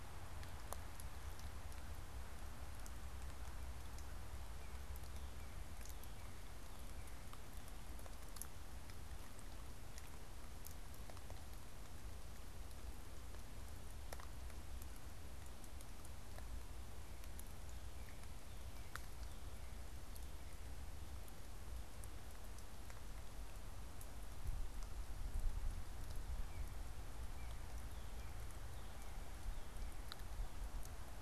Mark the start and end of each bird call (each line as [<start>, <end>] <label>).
[4.31, 7.41] Northern Cardinal (Cardinalis cardinalis)
[26.21, 30.41] Northern Cardinal (Cardinalis cardinalis)